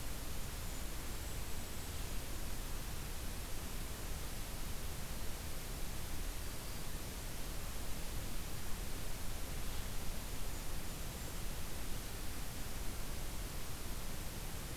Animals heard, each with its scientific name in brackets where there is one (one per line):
Golden-crowned Kinglet (Regulus satrapa)